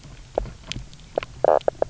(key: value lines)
label: biophony, knock croak
recorder: SoundTrap 300